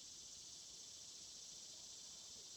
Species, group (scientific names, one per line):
Neotibicen tibicen
Cicadidae